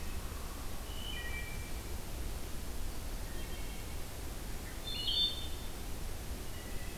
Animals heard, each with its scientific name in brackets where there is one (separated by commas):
Wood Thrush (Hylocichla mustelina)